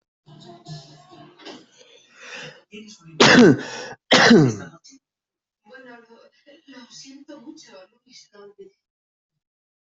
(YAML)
expert_labels:
- quality: ok
  cough_type: wet
  dyspnea: false
  wheezing: false
  stridor: false
  choking: false
  congestion: false
  nothing: true
  diagnosis: lower respiratory tract infection
  severity: mild
age: 43
gender: female
respiratory_condition: false
fever_muscle_pain: false
status: healthy